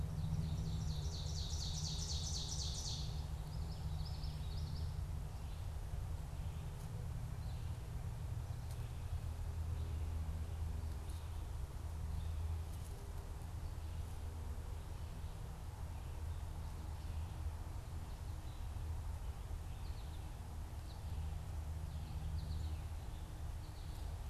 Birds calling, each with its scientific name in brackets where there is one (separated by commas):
Common Yellowthroat (Geothlypis trichas), Ovenbird (Seiurus aurocapilla), American Goldfinch (Spinus tristis)